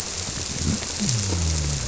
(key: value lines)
label: biophony
recorder: SoundTrap 300